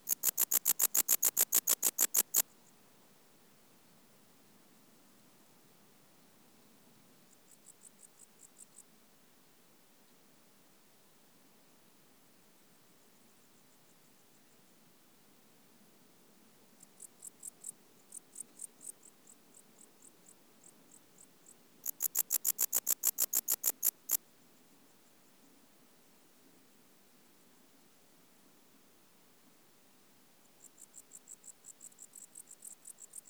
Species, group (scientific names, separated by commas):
Pholidoptera aptera, Orthoptera